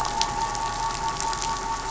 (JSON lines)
{"label": "anthrophony, boat engine", "recorder": "SoundTrap 500"}